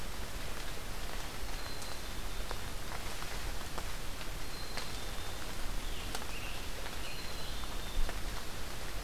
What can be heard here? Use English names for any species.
Black-capped Chickadee, Scarlet Tanager